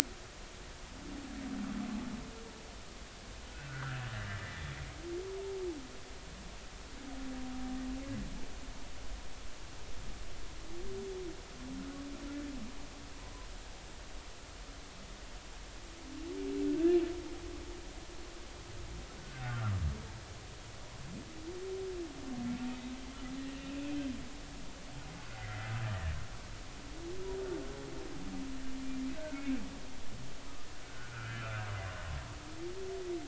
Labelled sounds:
3.5	4.0	humpback whale, 1.3 to 1.8 kHz
4.5	4.8	humpback whale, 3.3 to 3.6 kHz
19.2	19.8	humpback whale, 1.1 to 1.6 kHz
23.5	24.0	humpback whale, 2.4 to 3.0 kHz
25.4	26.1	humpback whale, 1.7 to 2.1 kHz
29.1	29.6	humpback whale, 1.3 to 2.6 kHz
30.9	31.7	humpback whale, 1.2 to 1.9 kHz

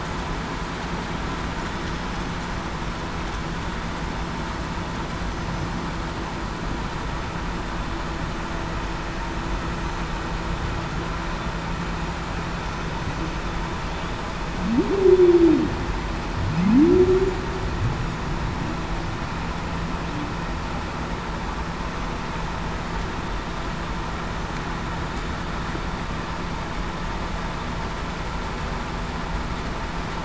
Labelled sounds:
14.9	15.7	humpback whale, 0.23 to 0.47 kHz
16.6	17.3	humpback whale, 0.19 to 0.42 kHz

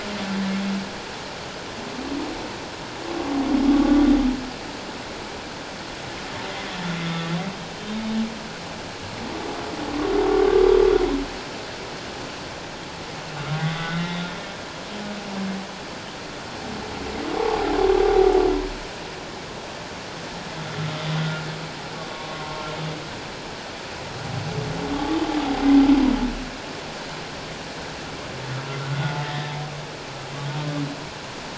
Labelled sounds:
13.6	14.2	humpback whale, 1.1 to 3.7 kHz
21.2	21.5	humpback whale, 1.3 to 1.5 kHz
22.3	22.6	humpback whale, 1.0 to 1.1 kHz
24.9	25.2	humpback whale, 1.1 to 1.2 kHz
28.6	29.4	humpback whale, 1.3 to 2.0 kHz

